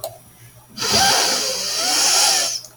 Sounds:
Sniff